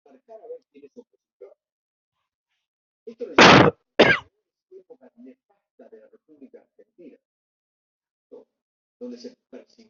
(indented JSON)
{
  "expert_labels": [
    {
      "quality": "good",
      "cough_type": "wet",
      "dyspnea": false,
      "wheezing": false,
      "stridor": false,
      "choking": false,
      "congestion": false,
      "nothing": true,
      "diagnosis": "upper respiratory tract infection",
      "severity": "mild"
    }
  ]
}